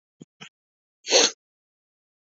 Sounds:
Sniff